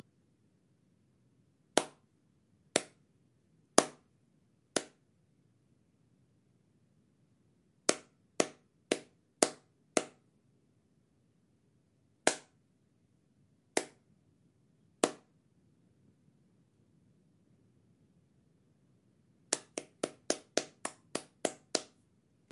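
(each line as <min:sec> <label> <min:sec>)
0:01.7 Hollow clapping sound indoors. 0:02.9
0:03.6 Hollow clapping sound indoors. 0:04.0
0:04.6 Hollow clapping sound indoors. 0:05.0
0:07.8 Hollow clapping sound indoors. 0:10.2
0:12.1 Hollow clapping sound indoors. 0:12.5
0:13.7 Hollow clapping sound indoors. 0:14.0
0:14.9 Hollow clapping sound indoors. 0:15.3
0:19.4 Continuous repetitive hollow clapping sound indoors. 0:21.9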